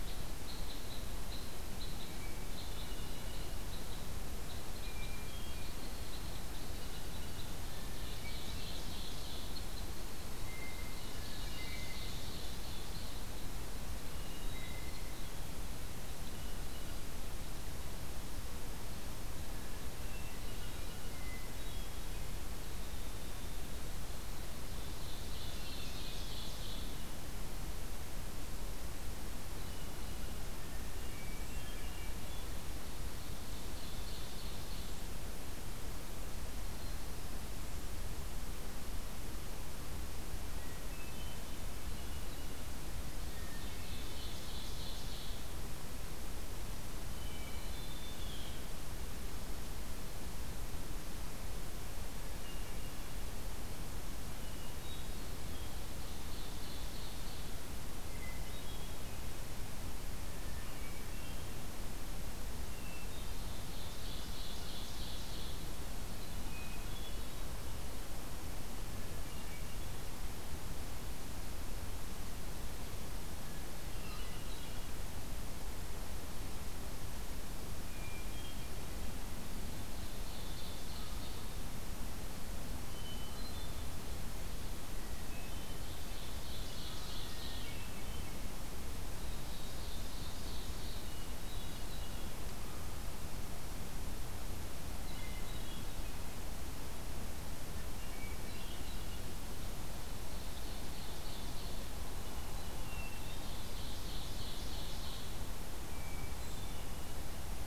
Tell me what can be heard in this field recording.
Red Crossbill, Hermit Thrush, Ovenbird, Blue Jay, Winter Wren, Brown Creeper